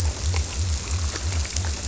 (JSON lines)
{"label": "biophony", "recorder": "SoundTrap 300"}